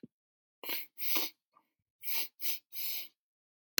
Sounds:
Sniff